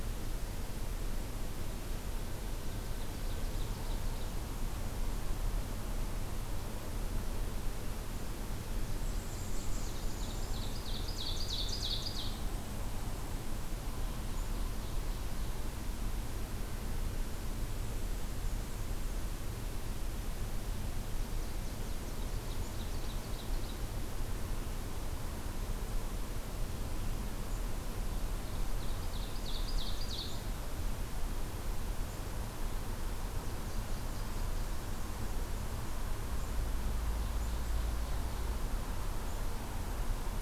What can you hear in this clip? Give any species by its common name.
Ovenbird, Black-capped Chickadee, Nashville Warbler